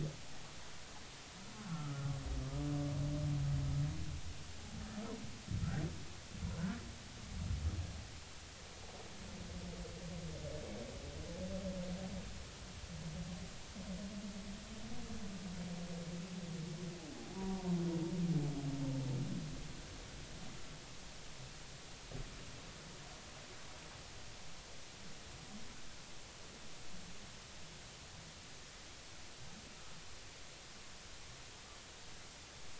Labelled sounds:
1.6	2.0	humpback whale, 1.2 to 1.5 kHz
17.1	17.7	humpback whale, 0.80 to 1.0 kHz

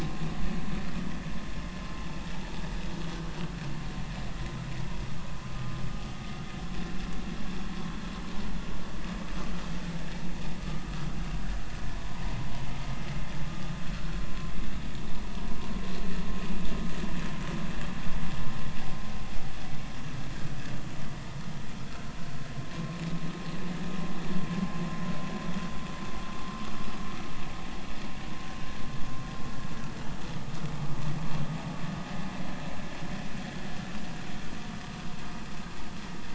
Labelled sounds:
10.6	10.9	vessel noise, 1.2 to 1.3 kHz
13.4	14.2	vessel noise, 1.2 to 1.5 kHz

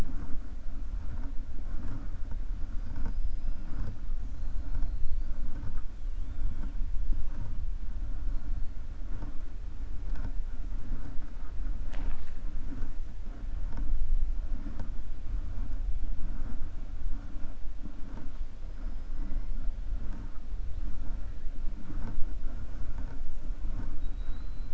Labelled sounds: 4.6	5.3	killer whale, 4.1 to 5.2 kHz

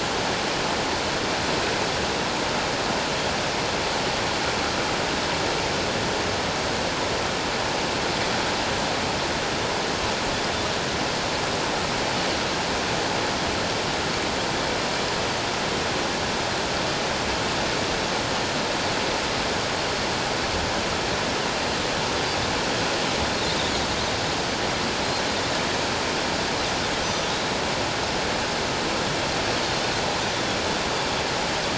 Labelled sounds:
27.0	27.4	Pacific white-sided dolphin, 3.2 to 6.1 kHz

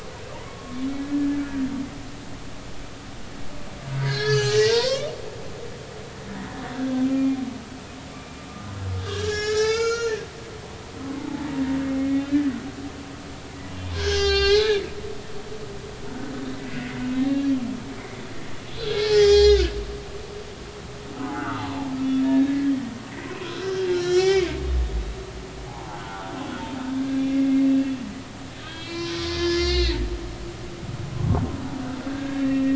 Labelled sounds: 0.5	1.3	humpback whale, 1.0 to 1.8 kHz
4.0	5.1	humpback whale, 0.83 to 6.5 kHz
7.0	7.4	humpback whale, 2.3 to 2.5 kHz
8.1	8.4	humpback whale, 2.3 to 2.4 kHz
9.0	10.1	humpback whale, 1.2 to 7.3 kHz
11.0	11.5	humpback whale, 0.83 to 1.1 kHz
12.1	12.4	humpback whale, 2.5 to 3.7 kHz
13.9	15.6	humpback whale, 0.80 to 7.3 kHz
16.1	16.3	humpback whale, 1.4 to 1.5 kHz
16.6	17.5	humpback whale, 1.8 to 4.0 kHz
18.7	19.7	humpback whale, 0.80 to 7.3 kHz
21.2	21.7	humpback whale, 0.80 to 1.6 kHz
22.5	24.5	humpback whale, 0.96 to 6.8 kHz
25.0	26.3	humpback whale, 0.80 to 5.8 kHz
27.3	27.7	humpback whale, 2.1 to 2.2 kHz
28.6	30.0	humpback whale, 0.96 to 6.1 kHz
32.1	32.7	humpback whale, 1.6 to 2.0 kHz

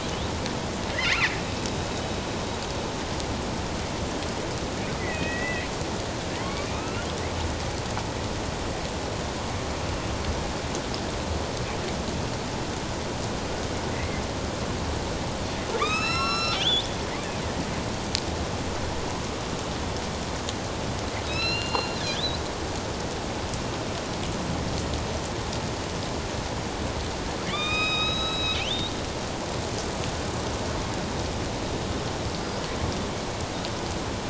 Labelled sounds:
0.9	1.3	killer whale, northern resident, A clan, AB subclan, 1.6 to 2.8 kHz
5.0	7.1	killer whale, northern resident, A clan, AB subclan, 1.1 to 3.0 kHz
13.9	14.2	killer whale, northern resident, A clan, AB subclan, 1.9 to 2.2 kHz
15.8	16.9	killer whale, northern resident, A clan, AB subclan, 1.0 to 8.0 kHz
21.3	22.4	killer whale, northern resident, A clan, AB subclan, 2.4 to 5.6 kHz
27.5	28.9	killer whale, northern resident, A clan, AB subclan, 1.1 to 6.5 kHz

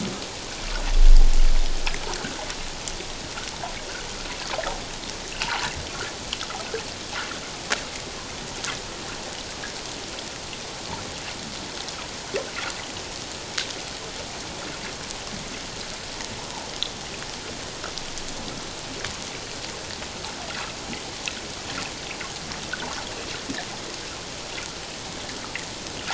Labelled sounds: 5.4	5.7	water noise, 0.78 to 1.2 kHz

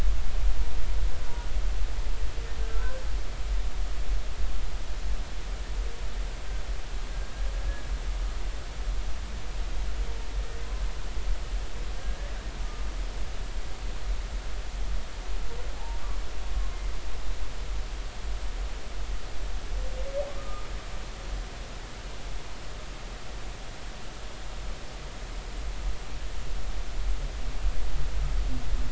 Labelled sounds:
12.0	12.9	humpback whale, 1.2 to 1.8 kHz
15.7	16.0	humpback whale, 0.80 to 0.96 kHz
21.4	21.7	humpback whale, 1.2 to 1.3 kHz

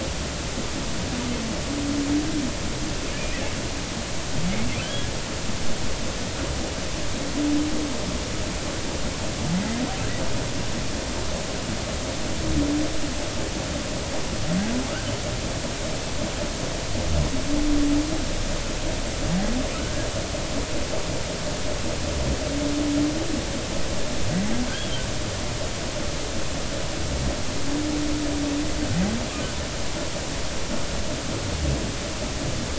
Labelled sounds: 3.1	3.4	humpback whale, 2.1 to 2.7 kHz
4.8	5.1	humpback whale, 1.5 to 1.7 kHz

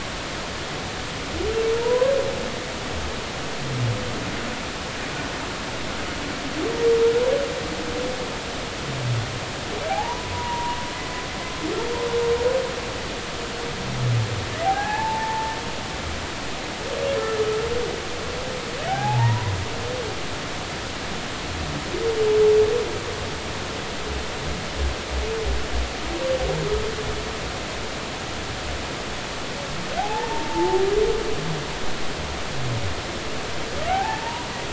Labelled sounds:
1.8	2.1	humpback whale, 0.90 to 1.1 kHz
9.9	10.8	humpback whale, 0.80 to 1.1 kHz
14.6	15.5	humpback whale, 0.80 to 1.8 kHz
18.9	19.5	humpback whale, 0.80 to 1.1 kHz
30.0	30.8	humpback whale, 0.80 to 0.99 kHz
33.9	34.5	humpback whale, 0.80 to 1.0 kHz

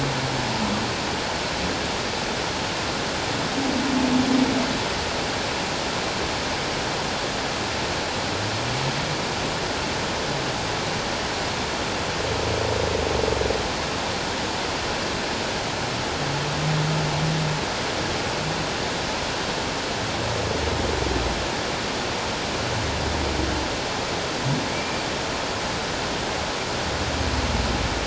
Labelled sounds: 24.7	25.0	humpback whale, 2.1 to 2.5 kHz

